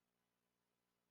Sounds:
Sneeze